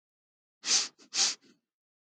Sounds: Sniff